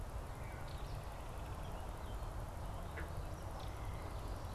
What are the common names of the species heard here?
Wood Thrush, Belted Kingfisher